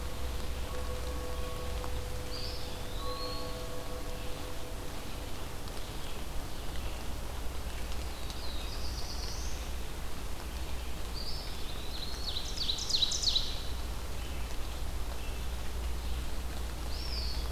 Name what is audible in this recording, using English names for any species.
Eastern Wood-Pewee, Red-eyed Vireo, Black-throated Blue Warbler, Ovenbird